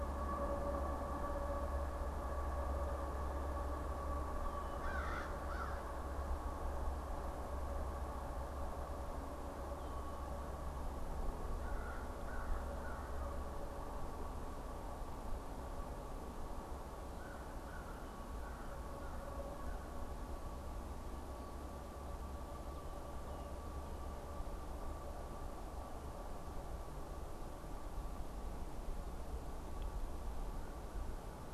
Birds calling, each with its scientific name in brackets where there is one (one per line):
American Crow (Corvus brachyrhynchos)